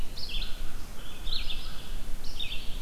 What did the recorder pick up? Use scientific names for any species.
Vireo olivaceus, Corvus brachyrhynchos